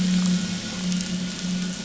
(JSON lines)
{"label": "anthrophony, boat engine", "recorder": "SoundTrap 500"}